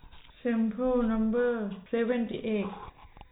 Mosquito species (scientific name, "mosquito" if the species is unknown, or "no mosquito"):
no mosquito